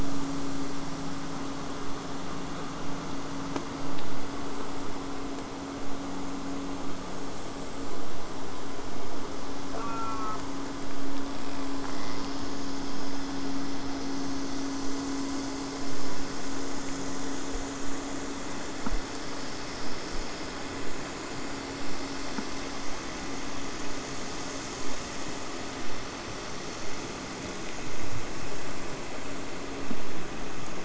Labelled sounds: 0.0	2.6	killer whale, southern resident, J pod, 6.8 to 8.0 kHz
9.7	10.4	killer whale, southern resident, J pod, call S04, 0.65 to 2.6 kHz

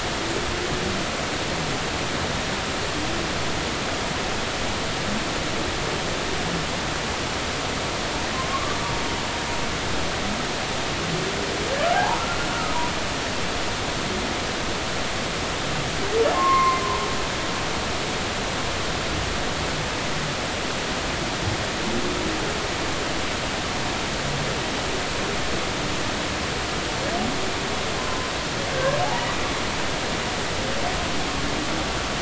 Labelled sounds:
8.3	8.8	humpback whale, 0.99 to 1.2 kHz
11.9	12.2	humpback whale, 0.80 to 1.1 kHz
16.3	16.8	humpback whale, 0.93 to 2.2 kHz
28.0	28.3	humpback whale, 0.96 to 1.1 kHz
28.7	29.0	humpback whale, 1.5 to 1.7 kHz

